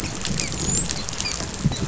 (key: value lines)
label: biophony, dolphin
recorder: SoundTrap 500